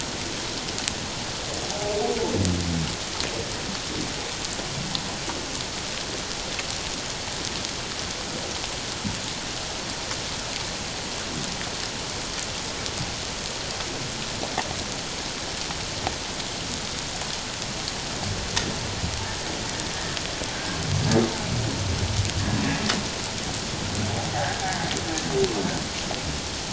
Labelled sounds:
20.5	20.8	humpback whale, 1.5 to 1.7 kHz
24.3	24.7	humpback whale, 1.5 to 1.8 kHz

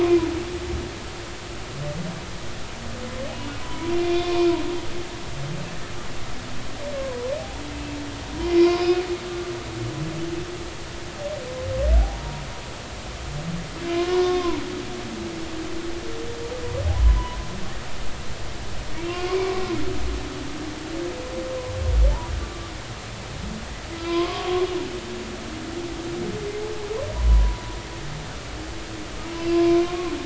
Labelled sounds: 3.6	4.5	humpback whale, 0.93 to 3.6 kHz
7.0	7.3	humpback whale, 0.96 to 1.1 kHz
8.4	8.9	humpback whale, 0.96 to 2.5 kHz
12.0	12.4	humpback whale, 0.80 to 0.99 kHz
13.9	14.6	humpback whale, 0.90 to 1.2 kHz
19.0	19.7	humpback whale, 0.96 to 2.9 kHz
24.0	24.6	humpback whale, 0.96 to 1.2 kHz
27.1	27.6	humpback whale, 0.93 to 1.0 kHz
29.5	30.1	humpback whale, 0.99 to 1.2 kHz

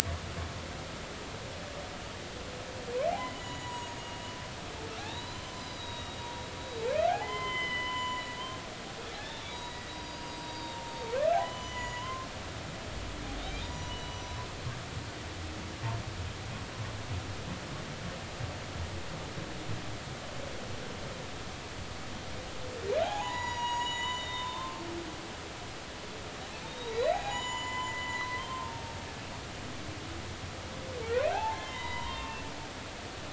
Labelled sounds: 3.2	6.2	humpback whale, 0.90 to 7.0 kHz
7.1	8.4	humpback whale, 0.80 to 7.1 kHz
9.5	11.0	humpback whale, 0.90 to 6.8 kHz
11.4	12.3	humpback whale, 0.96 to 7.0 kHz
13.4	14.2	humpback whale, 0.90 to 6.9 kHz
23.0	24.8	humpback whale, 0.80 to 7.0 kHz
26.7	28.6	humpback whale, 0.80 to 7.1 kHz
31.3	32.5	humpback whale, 0.80 to 3.9 kHz

